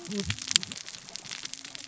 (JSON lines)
{"label": "biophony, cascading saw", "recorder": "SoundTrap 600 or HydroMoth"}